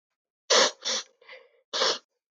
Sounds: Sniff